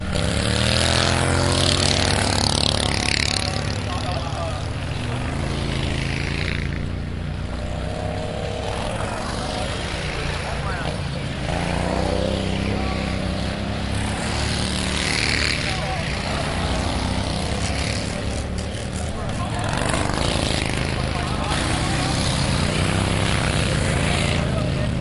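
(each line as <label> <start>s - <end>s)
Motorbikes are driving around. 0.0s - 25.0s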